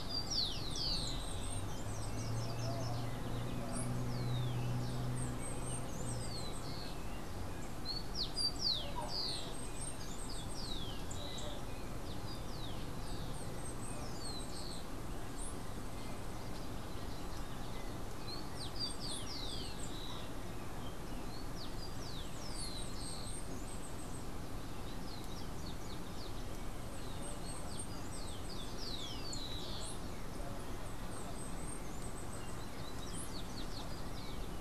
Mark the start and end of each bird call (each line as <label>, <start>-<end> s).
Rufous-collared Sparrow (Zonotrichia capensis), 0.0-30.3 s
Bananaquit (Coereba flaveola), 0.0-32.1 s